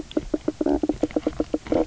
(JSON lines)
{"label": "biophony, knock croak", "recorder": "SoundTrap 300"}